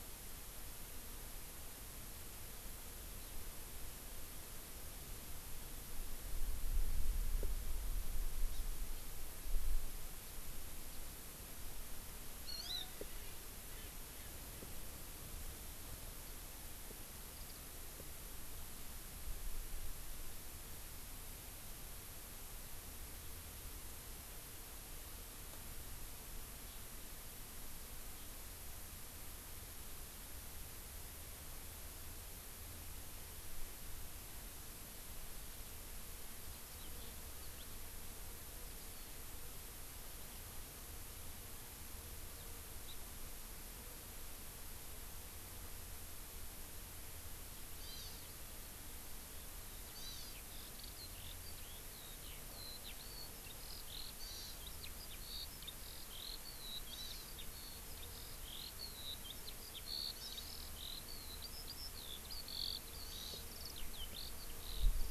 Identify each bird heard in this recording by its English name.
Hawaii Amakihi, Erckel's Francolin, Warbling White-eye, Eurasian Skylark